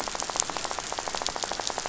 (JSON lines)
{"label": "biophony, rattle", "recorder": "SoundTrap 500"}